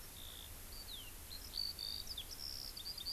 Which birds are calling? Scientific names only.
Alauda arvensis